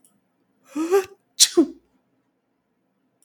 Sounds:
Sneeze